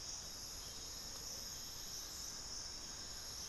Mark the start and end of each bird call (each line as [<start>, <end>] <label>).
[1.22, 3.49] Plain-winged Antshrike (Thamnophilus schistaceus)